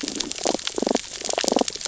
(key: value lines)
label: biophony, damselfish
recorder: SoundTrap 600 or HydroMoth